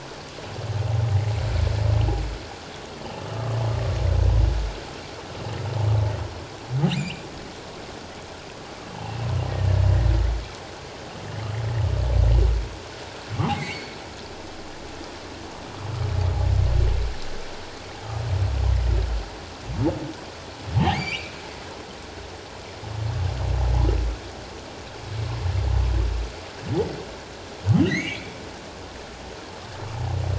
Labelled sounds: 6.9	7.2	humpback whale, 2.2 to 3.1 kHz
9.5	9.8	humpback whale, 1.7 to 1.9 kHz
13.4	14.0	humpback whale, 0.78 to 4.5 kHz
20.8	21.4	humpback whale, 0.78 to 4.9 kHz
27.9	28.4	humpback whale, 1.8 to 6.7 kHz

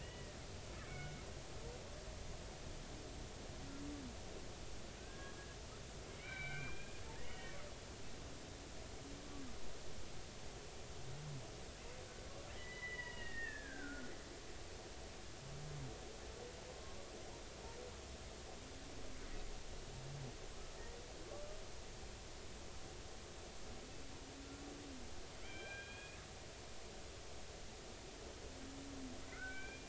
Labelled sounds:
0.0	0.4	killer whale, Bigg's (transient), 1.8 to 3.0 kHz
0.9	2.2	killer whale, Bigg's (transient), 1.4 to 2.3 kHz
5.0	5.4	killer whale, Bigg's (transient), 1.5 to 1.8 kHz
6.1	7.6	killer whale, Bigg's (transient), 1.4 to 3.9 kHz
12.5	14.1	killer whale, Bigg's (transient), 0.93 to 3.0 kHz
16.7	17.0	killer whale, Bigg's (transient), 0.93 to 1.1 kHz
25.4	26.2	killer whale, Bigg's (transient), 1.5 to 3.4 kHz
29.3	29.8	killer whale, Bigg's (transient), 1.3 to 2.5 kHz

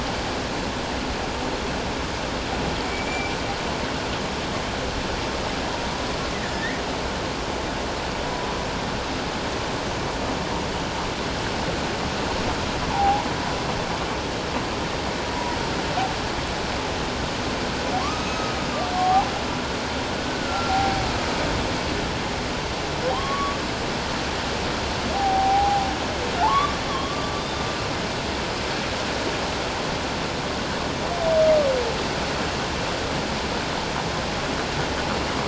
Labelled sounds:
2.8	3.3	humpback whale, 2.2 to 2.4 kHz
6.5	6.8	humpback whale, 1.7 to 2.1 kHz
12.9	13.3	humpback whale, 0.78 to 1.0 kHz
18.0	19.2	humpback whale, 0.78 to 6.5 kHz
20.2	21.0	humpback whale, 0.78 to 1.6 kHz
23.1	23.6	humpback whale, 0.88 to 3.3 kHz
25.1	25.8	humpback whale, 0.78 to 0.88 kHz
26.4	27.7	humpback whale, 0.81 to 3.7 kHz

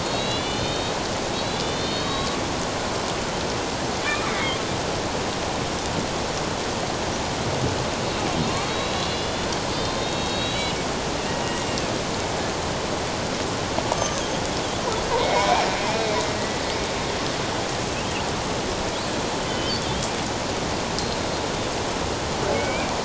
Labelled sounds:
0.0	1.0	killer whale, Bigg's (transient), 2.7 to 4.4 kHz
1.3	2.4	killer whale, Bigg's (transient), 1.1 to 4.5 kHz
4.3	4.6	killer whale, Bigg's (transient), 1.9 to 2.3 kHz
8.4	10.8	killer whale, Bigg's (transient), 2.6 to 4.4 kHz
13.9	14.3	killer whale, Bigg's (transient), 1.1 to 6.4 kHz
15.2	15.7	killer whale, Bigg's (transient), 1.9 to 2.5 kHz
19.5	19.8	killer whale, Bigg's (transient), 2.9 to 3.2 kHz
22.5	22.9	killer whale, Bigg's (transient), 2.1 to 2.5 kHz

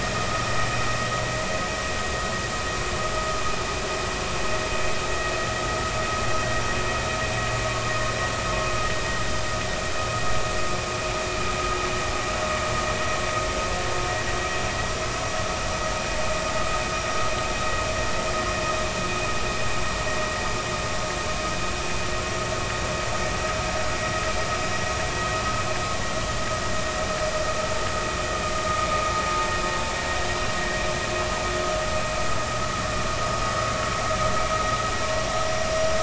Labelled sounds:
35.2	35.5	vessel noise, 5.6 to 5.7 kHz

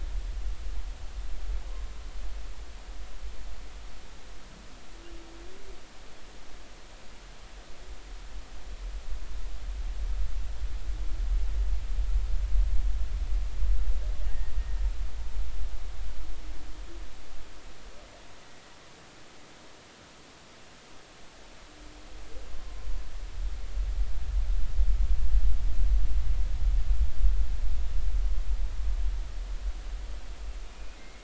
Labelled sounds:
14.3	14.5	humpback whale, 1.7 to 1.9 kHz
22.5	22.8	humpback whale, 0.99 to 1.1 kHz
30.7	31.2	humpback whale, 2.0 to 2.5 kHz

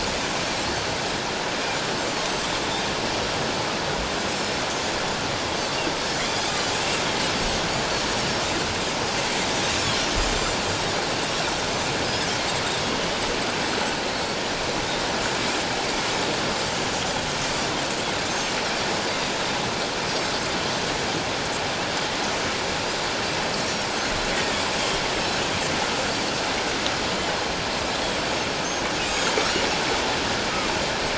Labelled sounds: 6.7	7.0	Pacific white-sided dolphin, 2.4 to 2.8 kHz
12.0	12.3	Pacific white-sided dolphin, 4.9 to 5.2 kHz
24.3	24.6	Pacific white-sided dolphin, 1.7 to 1.9 kHz
28.6	29.2	Pacific white-sided dolphin, 2.4 to 6.5 kHz

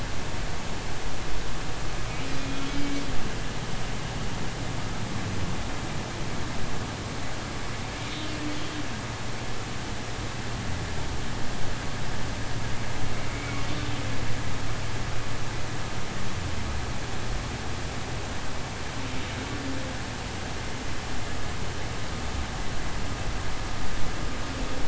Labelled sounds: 2.5	2.9	humpback whale, 2.2 to 3.4 kHz
13.3	13.6	humpback whale, 2.1 to 2.3 kHz

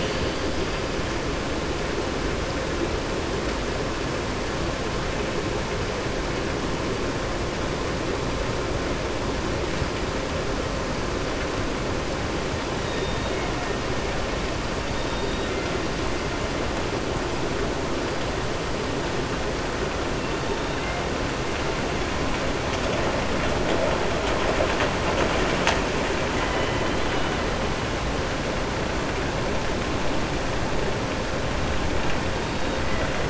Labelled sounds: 12.8	13.4	killer whale, southern resident, 1.9 to 3.9 kHz
14.9	15.5	killer whale, southern resident, 2.8 to 4.6 kHz
26.4	26.8	killer whale, southern resident, 1.0 to 3.0 kHz

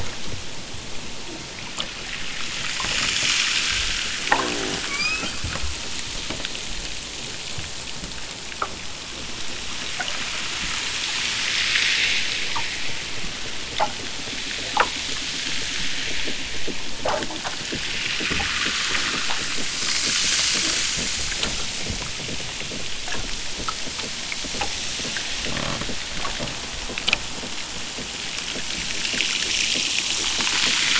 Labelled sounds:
4.7	5.5	killer whale, southern Alaska resident, 0.74 to 5.9 kHz

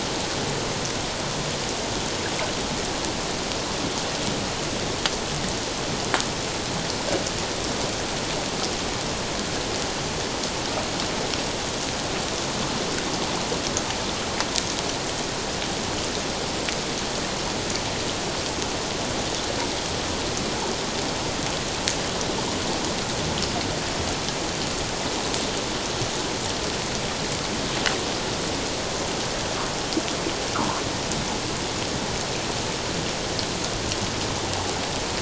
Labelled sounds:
30.5	30.8	humpback whale, 0.84 to 1.5 kHz

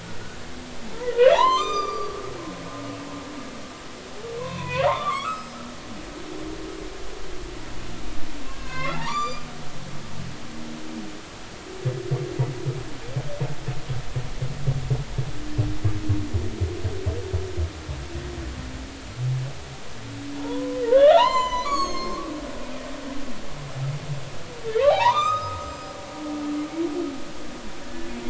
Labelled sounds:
0.0	0.4	humpback whale, 1.4 to 1.5 kHz
1.1	2.2	humpback whale, 0.80 to 7.4 kHz
4.4	5.6	humpback whale, 0.80 to 5.2 kHz
8.4	9.5	humpback whale, 0.80 to 7.4 kHz
20.3	22.3	humpback whale, 0.80 to 7.5 kHz
24.8	25.9	humpback whale, 0.80 to 6.4 kHz

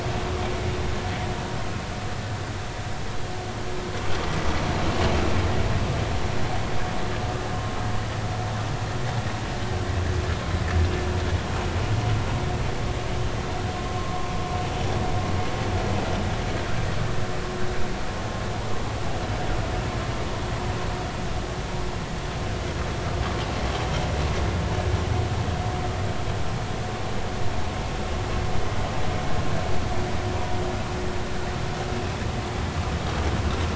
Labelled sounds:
14.0	14.3	vessel noise, 0.96 to 1.2 kHz

